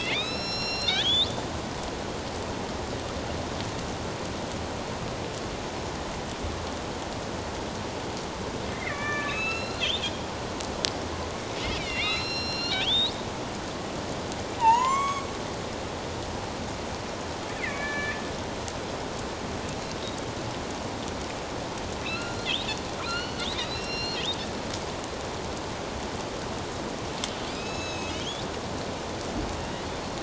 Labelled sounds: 1.0	1.3	killer whale, northern resident, A clan, AB subclan, 6.3 to 7.2 kHz
8.7	10.1	killer whale, northern resident, A clan, AB subclan, 1.1 to 6.8 kHz
11.8	13.2	killer whale, northern resident, A clan, AB subclan, 1.9 to 5.7 kHz
14.6	15.3	killer whale, northern resident, A clan, AB subclan, 0.81 to 7.7 kHz
17.6	18.2	killer whale, northern resident, A clan, AB subclan, 1.7 to 4.1 kHz
22.0	22.5	killer whale, northern resident, A clan, AB subclan, 1.3 to 4.2 kHz
23.0	24.2	killer whale, northern resident, A clan, AB subclan, 1.3 to 5.7 kHz
27.5	28.4	killer whale, northern resident, A clan, AB subclan, 2.2 to 6.7 kHz

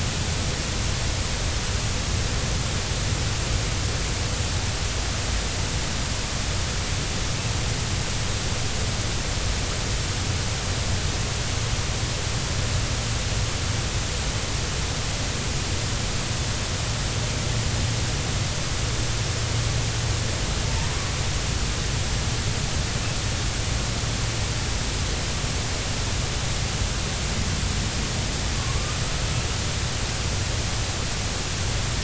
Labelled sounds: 28.6	29.0	killer whale, northern resident, A clan, AB subclan, 1.0 to 1.2 kHz

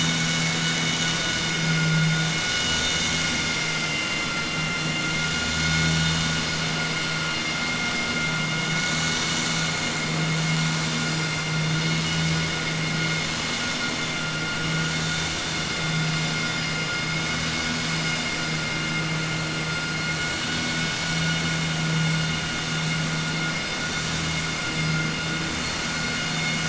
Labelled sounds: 4.3	5.1	vessel noise, 2.1 to 3.6 kHz

